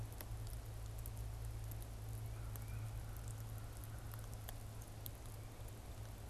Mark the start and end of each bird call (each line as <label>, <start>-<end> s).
Tufted Titmouse (Baeolophus bicolor), 2.2-3.0 s
American Crow (Corvus brachyrhynchos), 2.2-4.5 s